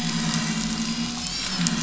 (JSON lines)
{"label": "anthrophony, boat engine", "recorder": "SoundTrap 500"}